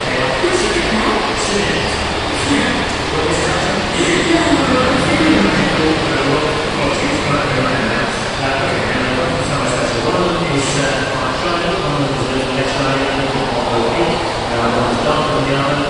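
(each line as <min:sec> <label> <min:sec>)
0:00.0 A woman is speaking faintly amid loud noise. 0:06.0
0:06.0 A male voice is faintly heard over a lot of noise. 0:15.9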